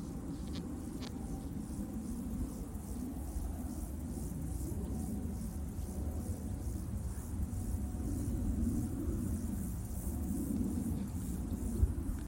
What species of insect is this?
Chorthippus mollis